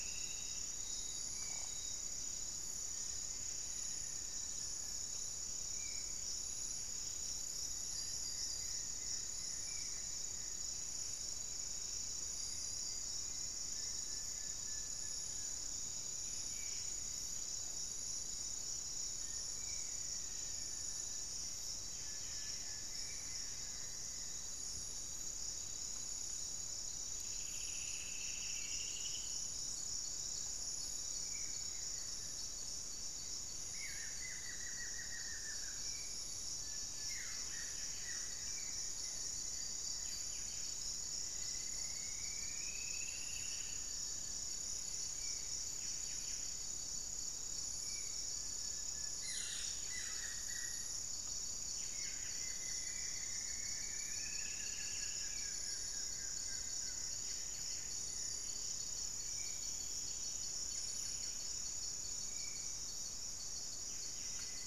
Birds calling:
Plain-winged Antshrike (Thamnophilus schistaceus)
Goeldi's Antbird (Akletos goeldii)
Black-faced Antthrush (Formicarius analis)
Buff-breasted Wren (Cantorchilus leucotis)
Buff-throated Woodcreeper (Xiphorhynchus guttatus)
Striped Woodcreeper (Xiphorhynchus obsoletus)
Spot-winged Antshrike (Pygiptila stellaris)

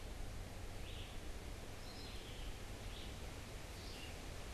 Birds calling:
Scarlet Tanager (Piranga olivacea)
Red-eyed Vireo (Vireo olivaceus)

